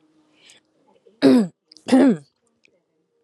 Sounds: Throat clearing